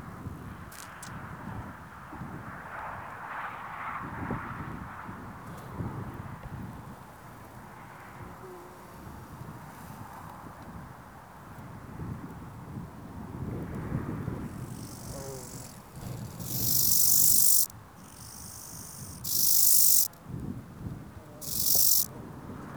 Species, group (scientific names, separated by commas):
Chorthippus yersini, Orthoptera